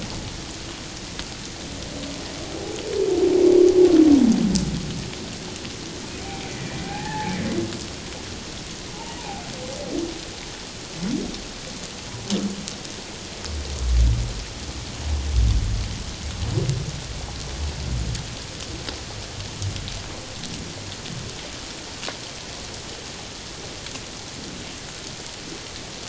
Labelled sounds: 6.2	7.3	humpback whale, 0.78 to 2.1 kHz
8.9	9.4	humpback whale, 0.78 to 1.0 kHz

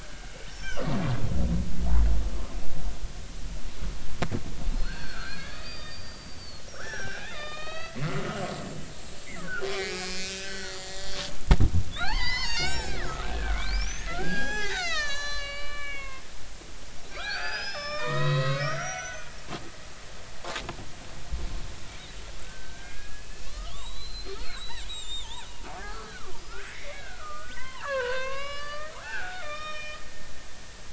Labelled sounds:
0.6	0.8	killer whale, Bigg's (transient), 2.7 to 3.3 kHz
4.7	8.2	killer whale, Bigg's (transient), 1.1 to 5.9 kHz
9.0	9.3	killer whale, Bigg's (transient), 4.1 to 4.2 kHz
9.7	11.2	killer whale, Bigg's (transient), 1.2 to 5.1 kHz
11.9	16.2	killer whale, Bigg's (transient), 0.80 to 7.9 kHz
17.1	19.3	killer whale, Bigg's (transient), 0.90 to 6.4 kHz
20.4	20.7	killer whale, Bigg's (transient), 0.80 to 1.1 kHz
22.4	30.0	killer whale, Bigg's (transient), 0.80 to 8.0 kHz

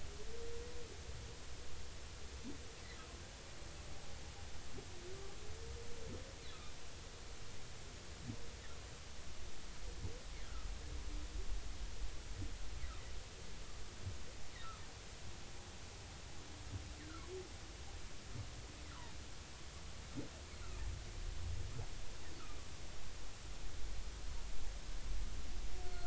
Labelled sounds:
18.9	19.2	humpback whale, 0.83 to 1.5 kHz

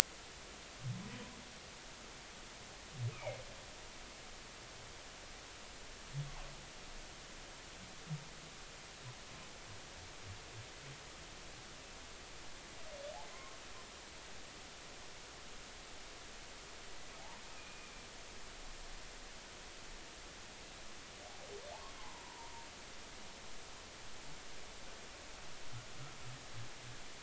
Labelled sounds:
3.1	3.4	humpback whale, 2.1 to 2.6 kHz
13.2	13.6	humpback whale, 0.96 to 2.2 kHz
17.2	18.0	humpback whale, 0.80 to 2.5 kHz
22.0	22.5	humpback whale, 0.80 to 1.1 kHz

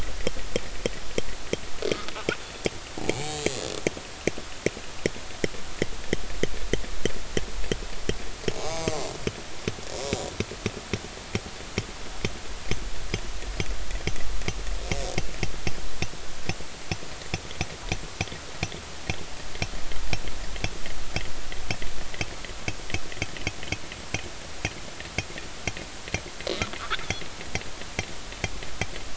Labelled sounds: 3.0	3.3	killer whale, northern resident, G clan, 0.80 to 2.5 kHz
8.6	9.1	killer whale, northern resident, G clan, 0.93 to 7.5 kHz

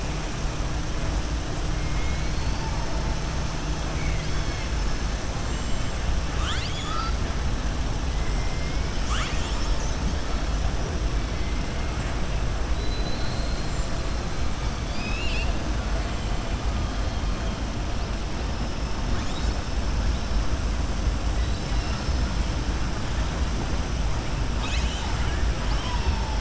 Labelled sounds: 1.9	2.7	killer whale, southern resident, 2.1 to 5.3 kHz
3.9	4.7	killer whale, southern resident, 1.6 to 5.5 kHz
6.3	7.2	killer whale, southern resident, 1.2 to 7.6 kHz
12.7	13.7	killer whale, southern resident, 3.9 to 4.4 kHz

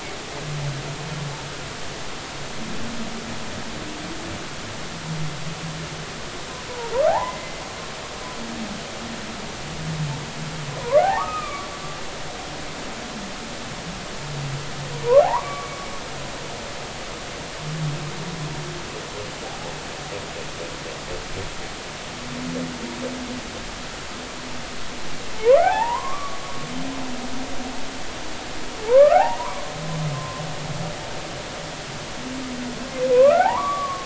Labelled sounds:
7.1	7.6	humpback whale, 0.80 to 2.1 kHz
11.0	11.7	humpback whale, 0.80 to 2.6 kHz
15.2	15.7	humpback whale, 0.80 to 1.2 kHz
19.4	19.7	humpback whale, 0.80 to 0.90 kHz
25.4	26.4	humpback whale, 0.80 to 2.0 kHz
28.8	29.6	humpback whale, 0.80 to 1.9 kHz
30.1	30.4	humpback whale, 0.99 to 1.1 kHz
33.1	34.0	humpback whale, 0.80 to 1.6 kHz

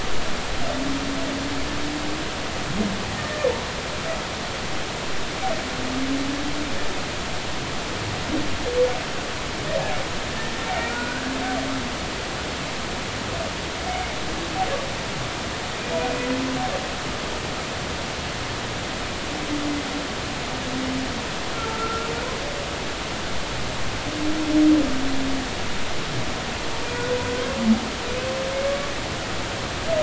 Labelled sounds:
3.2	3.5	humpback whale, 1.7 to 1.9 kHz
10.9	11.4	humpback whale, 1.4 to 1.7 kHz
16.0	16.3	humpback whale, 2.4 to 2.5 kHz
21.5	22.1	humpback whale, 1.2 to 1.4 kHz

